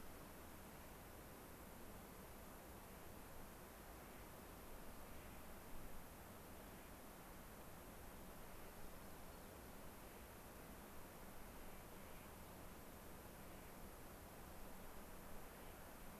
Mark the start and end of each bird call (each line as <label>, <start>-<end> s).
Clark's Nutcracker (Nucifraga columbiana), 2.8-3.2 s
Clark's Nutcracker (Nucifraga columbiana), 4.0-4.3 s
Clark's Nutcracker (Nucifraga columbiana), 5.1-5.6 s
Clark's Nutcracker (Nucifraga columbiana), 6.7-7.1 s
Clark's Nutcracker (Nucifraga columbiana), 8.5-8.8 s
Rock Wren (Salpinctes obsoletus), 8.7-9.8 s
Clark's Nutcracker (Nucifraga columbiana), 11.5-12.4 s
Clark's Nutcracker (Nucifraga columbiana), 13.3-13.9 s
Clark's Nutcracker (Nucifraga columbiana), 15.5-16.1 s